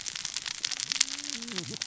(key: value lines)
label: biophony, cascading saw
recorder: SoundTrap 600 or HydroMoth